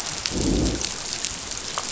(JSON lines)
{"label": "biophony, growl", "recorder": "SoundTrap 500"}